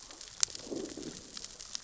{"label": "biophony, growl", "recorder": "SoundTrap 600 or HydroMoth"}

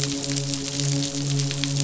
{"label": "biophony, midshipman", "recorder": "SoundTrap 500"}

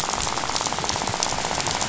{"label": "biophony, rattle", "recorder": "SoundTrap 500"}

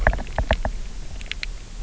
{"label": "biophony, knock", "recorder": "SoundTrap 300"}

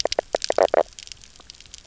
{"label": "biophony, knock croak", "recorder": "SoundTrap 300"}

